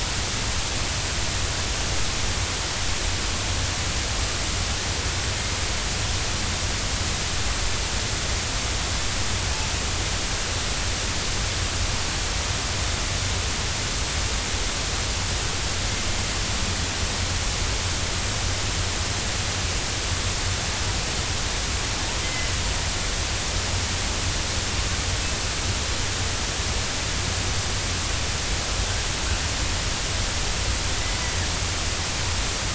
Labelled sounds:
22.2	22.5	killer whale, northern resident, A clan, AB subclan, 2.0 to 2.1 kHz

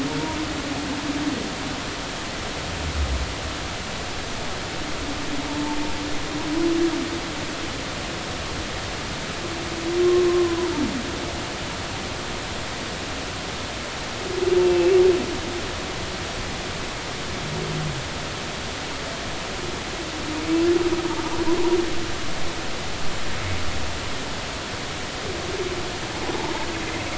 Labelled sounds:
5.5	5.8	humpback whale, 0.83 to 1.1 kHz
10.0	10.7	humpback whale, 0.86 to 1.1 kHz
14.6	14.9	humpback whale, 2.5 to 2.8 kHz

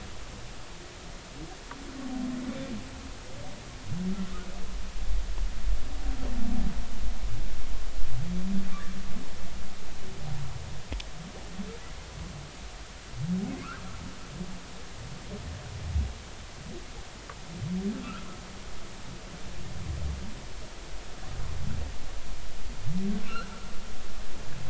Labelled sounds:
18.0	18.3	humpback whale, 1.1 to 1.7 kHz

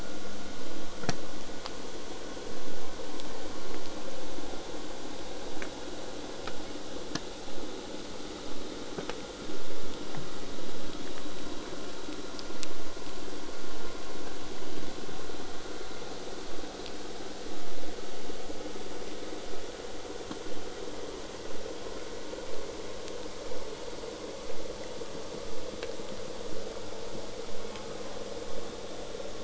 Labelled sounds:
19.5	24.5	vessel noise, 0.04 to 8.0 kHz
27.5	28.2	killer whale, southern resident, J pod, call S04, 0.73 to 3.0 kHz

